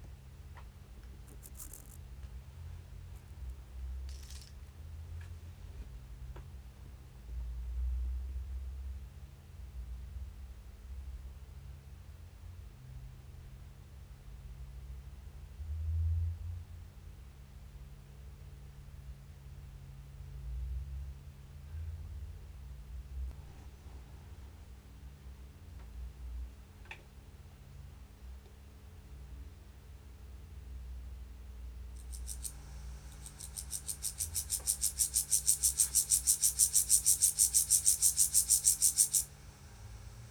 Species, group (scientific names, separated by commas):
Chorthippus vagans, Orthoptera